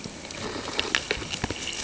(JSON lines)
{"label": "ambient", "recorder": "HydroMoth"}